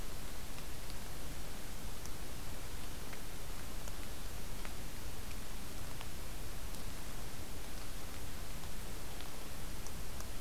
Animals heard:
forest ambience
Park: Acadia National Park